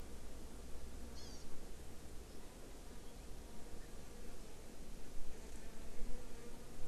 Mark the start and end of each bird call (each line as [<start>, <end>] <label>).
[1.10, 1.40] Hawaii Amakihi (Chlorodrepanis virens)